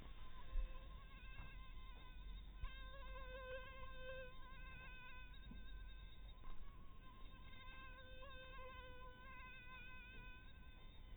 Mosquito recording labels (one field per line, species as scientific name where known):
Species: mosquito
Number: one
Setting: cup